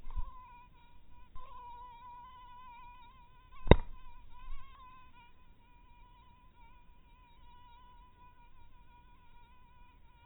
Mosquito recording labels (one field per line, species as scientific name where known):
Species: mosquito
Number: one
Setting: cup